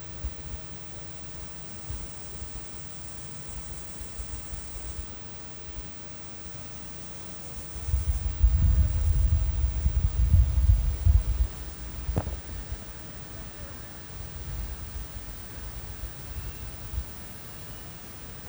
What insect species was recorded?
Gomphocerippus rufus